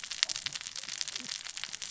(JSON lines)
{"label": "biophony, cascading saw", "recorder": "SoundTrap 600 or HydroMoth"}